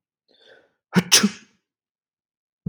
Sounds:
Sneeze